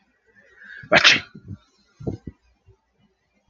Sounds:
Sneeze